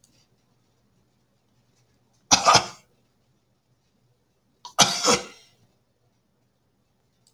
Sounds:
Cough